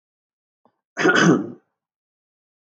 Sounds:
Throat clearing